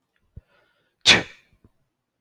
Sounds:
Sneeze